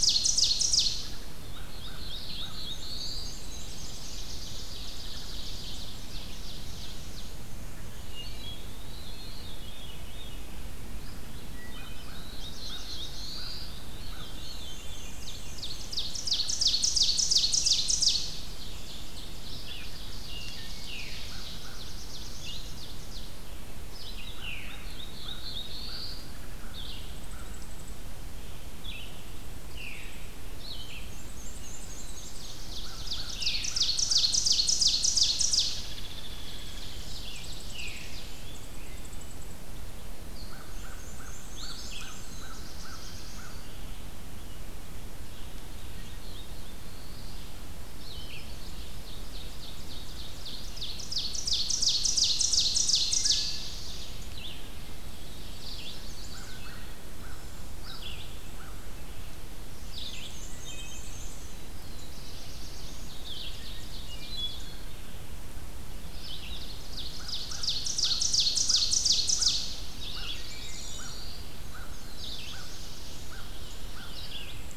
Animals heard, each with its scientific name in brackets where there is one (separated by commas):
Chestnut-sided Warbler (Setophaga pensylvanica), American Crow (Corvus brachyrhynchos), Red-eyed Vireo (Vireo olivaceus), Blackpoll Warbler (Setophaga striata), Wood Thrush (Hylocichla mustelina), Hairy Woodpecker (Dryobates villosus), Blue-headed Vireo (Vireo solitarius), Veery (Catharus fuscescens), Ovenbird (Seiurus aurocapilla), Black-throated Blue Warbler (Setophaga caerulescens), Black-and-white Warbler (Mniotilta varia), Eastern Wood-Pewee (Contopus virens), Rose-breasted Grosbeak (Pheucticus ludovicianus)